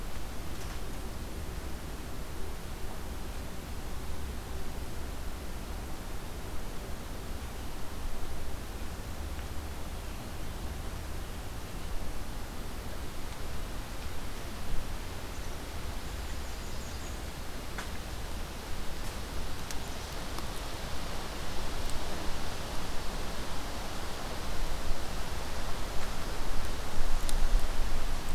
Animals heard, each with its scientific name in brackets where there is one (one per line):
American Redstart (Setophaga ruticilla)